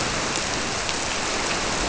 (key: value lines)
label: biophony
recorder: SoundTrap 300